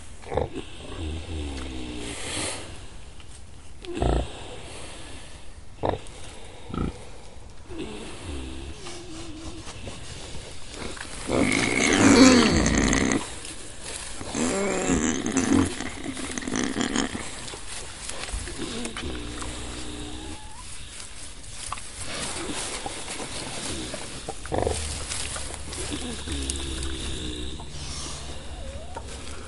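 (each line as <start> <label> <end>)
0.0 A pig grunts. 29.5
0.0 Snoring. 29.5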